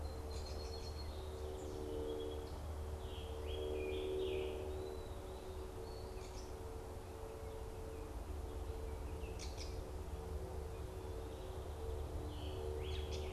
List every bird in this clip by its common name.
Song Sparrow, Eastern Wood-Pewee, Scarlet Tanager, Gray Catbird